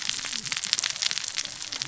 {"label": "biophony, cascading saw", "recorder": "SoundTrap 600 or HydroMoth"}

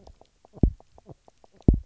{"label": "biophony, knock croak", "recorder": "SoundTrap 300"}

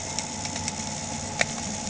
{"label": "anthrophony, boat engine", "recorder": "HydroMoth"}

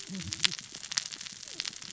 {"label": "biophony, cascading saw", "recorder": "SoundTrap 600 or HydroMoth"}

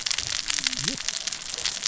{"label": "biophony, cascading saw", "recorder": "SoundTrap 600 or HydroMoth"}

